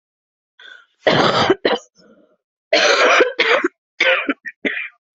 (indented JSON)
{
  "expert_labels": [
    {
      "quality": "ok",
      "cough_type": "dry",
      "dyspnea": false,
      "wheezing": false,
      "stridor": false,
      "choking": false,
      "congestion": false,
      "nothing": false,
      "diagnosis": "COVID-19",
      "severity": "mild"
    }
  ],
  "age": 32,
  "gender": "female",
  "respiratory_condition": false,
  "fever_muscle_pain": false,
  "status": "COVID-19"
}